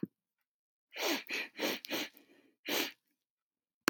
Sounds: Sniff